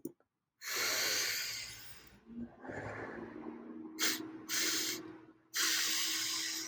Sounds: Sniff